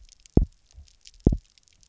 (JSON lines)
{"label": "biophony, double pulse", "recorder": "SoundTrap 300"}